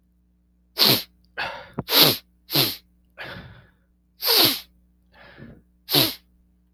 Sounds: Sniff